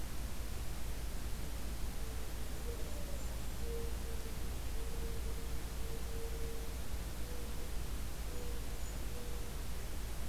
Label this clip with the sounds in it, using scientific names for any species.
Zenaida macroura, Regulus satrapa